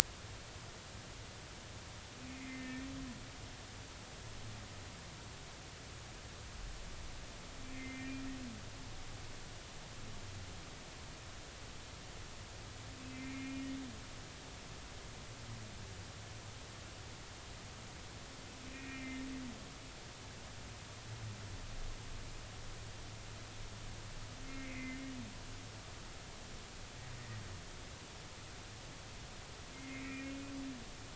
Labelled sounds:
2.3	2.9	humpback whale, 1.8 to 2.3 kHz
7.7	8.2	humpback whale, 1.8 to 2.5 kHz
13.1	13.6	humpback whale, 2.0 to 2.5 kHz
18.7	19.2	humpback whale, 1.8 to 2.6 kHz
24.5	25.0	humpback whale, 2.0 to 2.3 kHz
29.7	30.3	humpback whale, 2.0 to 2.6 kHz

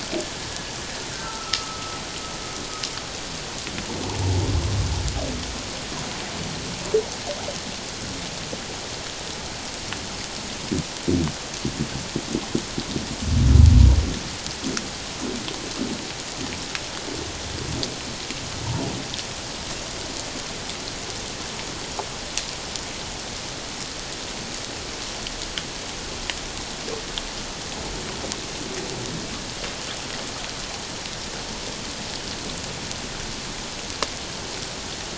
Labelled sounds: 1.1	2.0	humpback whale, 1.2 to 1.6 kHz

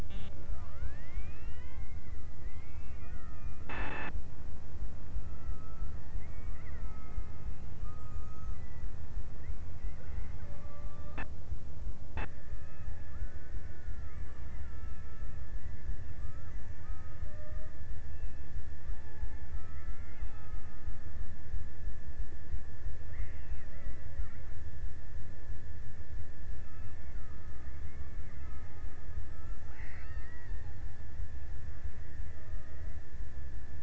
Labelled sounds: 4.7	6.2	killer whale, Bigg's (transient), 0.90 to 2.4 kHz
6.5	9.7	killer whale, Bigg's (transient), 0.70 to 2.6 kHz
10.2	11.7	killer whale, Bigg's (transient), 0.36 to 2.1 kHz
12.4	14.7	killer whale, Bigg's (transient), 0.52 to 2.1 kHz
16.2	18.2	killer whale, Bigg's (transient), 0.27 to 2.1 kHz
19.2	21.3	killer whale, Bigg's (transient), 0.51 to 2.5 kHz
25.9	31.4	killer whale, Bigg's (transient), 0.70 to 2.9 kHz
31.8	33.4	killer whale, Bigg's (transient), 0.31 to 2.3 kHz

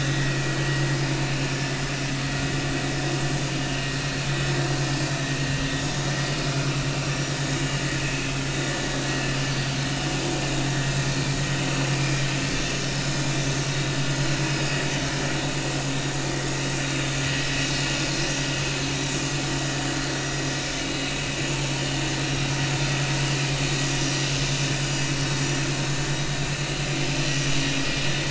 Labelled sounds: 3.7	4.0	vessel noise, 2.6 to 2.8 kHz
6.5	6.7	vessel noise, 1.3 to 1.5 kHz
8.0	8.3	vessel noise, 2.4 to 2.7 kHz
9.5	9.8	vessel noise, 4.5 to 4.7 kHz
12.0	12.3	vessel noise, 4.9 to 5.0 kHz
17.4	17.7	vessel noise, 3.9 to 4.1 kHz

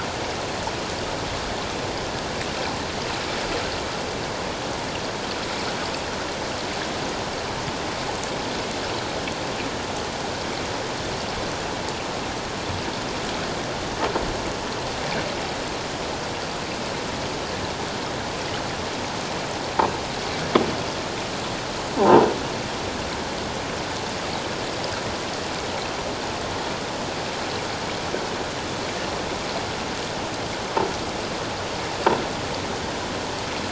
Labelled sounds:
22.0	22.3	croaking sound likely from a nearby submerged object, 0.78 to 1.1 kHz

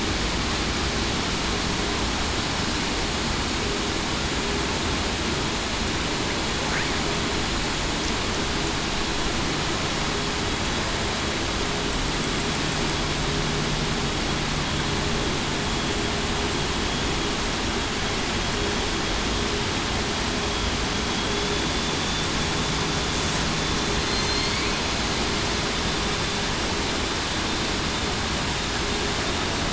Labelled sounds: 21.2	21.5	vessel noise, 3.3 to 3.5 kHz

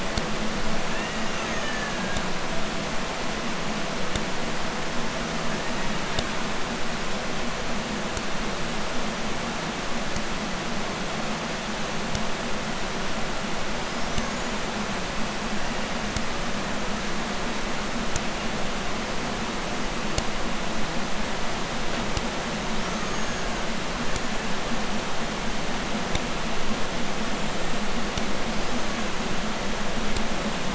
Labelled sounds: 0.8	2.3	killer whale, Bigg's (transient), 0.45 to 6.9 kHz
4.4	6.5	killer whale, Bigg's (transient), 0.88 to 7.5 kHz
13.7	14.8	killer whale, Bigg's (transient), 0.76 to 7.4 kHz
22.5	24.9	killer whale, Bigg's (transient), 0.63 to 7.1 kHz
27.2	28.0	killer whale, Bigg's (transient), 6.7 to 8.0 kHz
28.4	29.4	killer whale, Bigg's (transient), 0.37 to 7.1 kHz

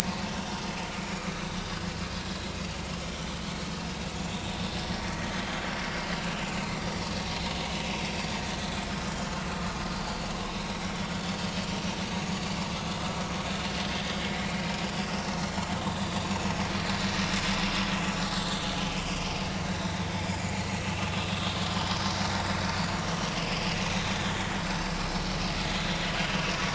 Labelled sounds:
0.0	0.4	vessel noise, 0.80 to 0.96 kHz
1.0	1.3	vessel noise, 2.3 to 6.9 kHz
4.9	5.3	vessel noise, 1.7 to 2.0 kHz
10.4	10.7	vessel noise, 3.6 to 3.9 kHz
15.8	16.5	vessel noise, 2.6 to 3.7 kHz
18.3	18.5	vessel noise, 7.3 to 7.7 kHz
19.6	20.7	vessel noise, 2.1 to 7.0 kHz
23.9	24.3	vessel noise, 3.4 to 3.9 kHz

